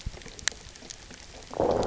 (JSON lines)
{"label": "biophony, low growl", "recorder": "SoundTrap 300"}